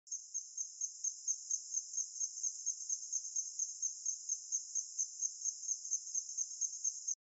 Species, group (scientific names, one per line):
Anaxipha tinnulenta
Orthoptera